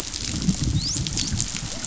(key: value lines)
label: biophony, dolphin
recorder: SoundTrap 500